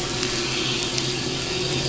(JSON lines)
{"label": "anthrophony, boat engine", "recorder": "SoundTrap 500"}